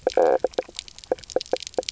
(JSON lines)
{"label": "biophony, knock croak", "recorder": "SoundTrap 300"}